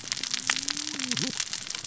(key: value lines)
label: biophony, cascading saw
recorder: SoundTrap 600 or HydroMoth